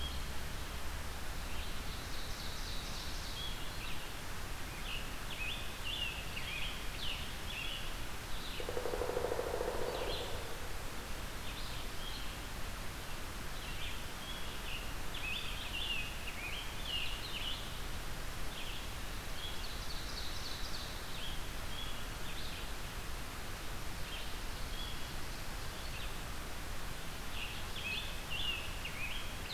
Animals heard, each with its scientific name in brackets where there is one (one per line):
Red-eyed Vireo (Vireo olivaceus)
Pileated Woodpecker (Dryocopus pileatus)
Ovenbird (Seiurus aurocapilla)
Scarlet Tanager (Piranga olivacea)